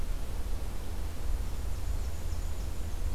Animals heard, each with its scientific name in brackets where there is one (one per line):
Black-and-white Warbler (Mniotilta varia)